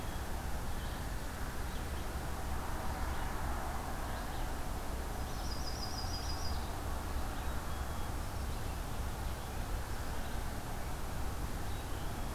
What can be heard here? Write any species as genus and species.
Vireo olivaceus, Setophaga coronata, Poecile atricapillus